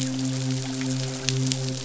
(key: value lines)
label: biophony, midshipman
recorder: SoundTrap 500